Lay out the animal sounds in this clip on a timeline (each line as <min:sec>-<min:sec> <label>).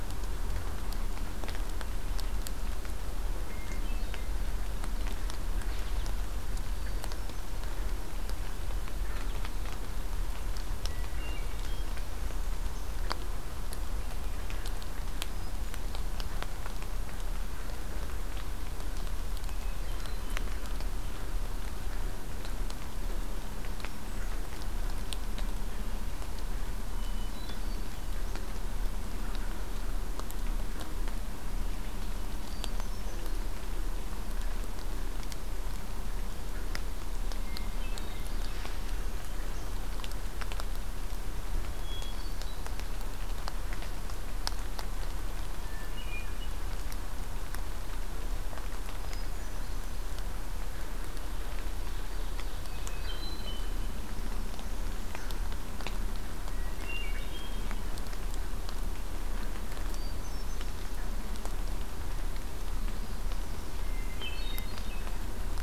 0:03.4-0:04.4 Hermit Thrush (Catharus guttatus)
0:05.6-0:06.1 American Goldfinch (Spinus tristis)
0:06.5-0:07.6 Hermit Thrush (Catharus guttatus)
0:09.1-0:09.4 American Goldfinch (Spinus tristis)
0:10.6-0:12.1 Hermit Thrush (Catharus guttatus)
0:11.7-0:12.9 Northern Parula (Setophaga americana)
0:15.0-0:16.0 Hermit Thrush (Catharus guttatus)
0:19.3-0:20.5 Hermit Thrush (Catharus guttatus)
0:23.8-0:24.5 Hermit Thrush (Catharus guttatus)
0:26.9-0:28.0 Hermit Thrush (Catharus guttatus)
0:32.2-0:33.5 Hermit Thrush (Catharus guttatus)
0:37.3-0:38.4 Hermit Thrush (Catharus guttatus)
0:37.5-0:38.9 Ovenbird (Seiurus aurocapilla)
0:38.8-0:39.7 Northern Parula (Setophaga americana)
0:41.5-0:42.7 Hermit Thrush (Catharus guttatus)
0:45.5-0:46.6 Hermit Thrush (Catharus guttatus)
0:49.0-0:50.0 Hermit Thrush (Catharus guttatus)
0:51.4-0:53.1 Ovenbird (Seiurus aurocapilla)
0:52.8-0:53.9 Hermit Thrush (Catharus guttatus)
0:54.0-0:55.4 Northern Parula (Setophaga americana)
0:56.4-0:57.9 Hermit Thrush (Catharus guttatus)
0:59.8-1:00.8 Hermit Thrush (Catharus guttatus)
1:02.6-1:03.7 Northern Parula (Setophaga americana)
1:03.9-1:05.1 Hermit Thrush (Catharus guttatus)